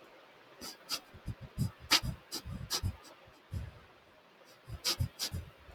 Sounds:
Sniff